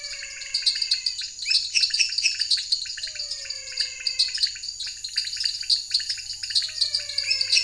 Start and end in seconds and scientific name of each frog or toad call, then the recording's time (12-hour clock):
0.0	1.1	Physalaemus albonotatus
0.0	7.6	Dendropsophus nanus
0.0	7.6	Leptodactylus podicipinus
1.6	3.0	Dendropsophus minutus
3.0	4.5	Physalaemus albonotatus
6.5	7.6	Physalaemus albonotatus
7.1	7.6	Dendropsophus minutus
7:15pm